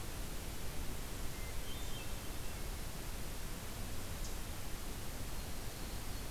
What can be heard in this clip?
Hermit Thrush